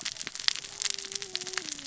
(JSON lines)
{"label": "biophony, cascading saw", "recorder": "SoundTrap 600 or HydroMoth"}